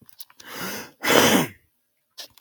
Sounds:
Throat clearing